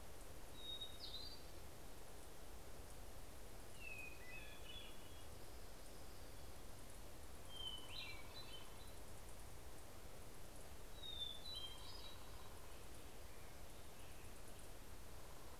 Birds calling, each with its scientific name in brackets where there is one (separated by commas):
Hermit Thrush (Catharus guttatus)